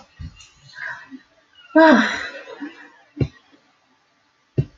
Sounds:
Sigh